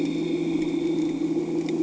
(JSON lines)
{"label": "anthrophony, boat engine", "recorder": "HydroMoth"}